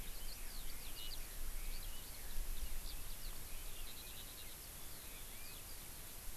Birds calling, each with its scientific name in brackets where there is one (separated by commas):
Eurasian Skylark (Alauda arvensis)